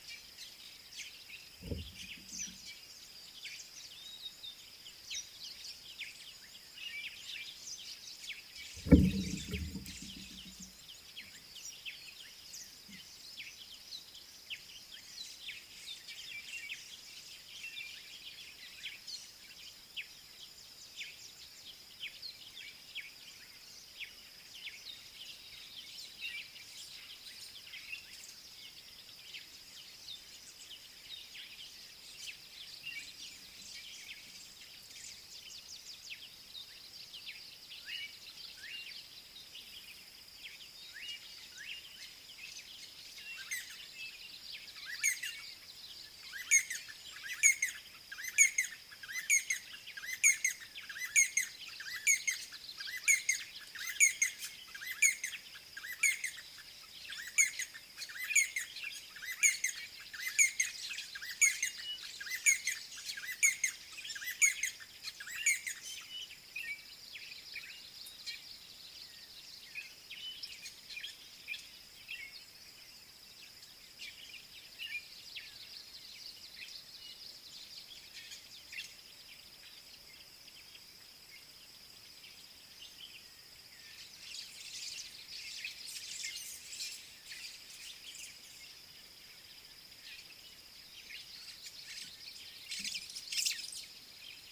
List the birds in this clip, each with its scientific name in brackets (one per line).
Fork-tailed Drongo (Dicrurus adsimilis)
D'Arnaud's Barbet (Trachyphonus darnaudii)
White-browed Sparrow-Weaver (Plocepasser mahali)